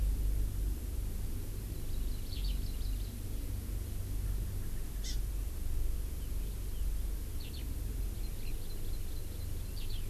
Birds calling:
Eurasian Skylark (Alauda arvensis), Hawaii Amakihi (Chlorodrepanis virens)

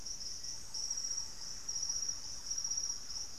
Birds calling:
Thrush-like Wren (Campylorhynchus turdinus), Black-faced Antthrush (Formicarius analis)

